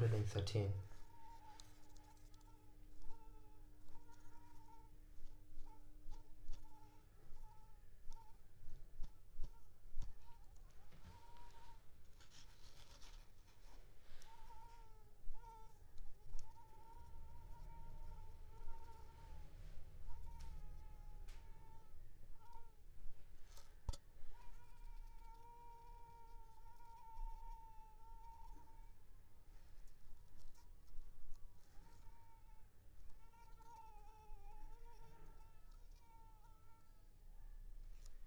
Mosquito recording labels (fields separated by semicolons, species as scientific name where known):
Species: Anopheles squamosus; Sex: female; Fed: unfed; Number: one; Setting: cup